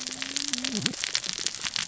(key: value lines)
label: biophony, cascading saw
recorder: SoundTrap 600 or HydroMoth